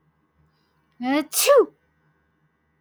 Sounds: Sneeze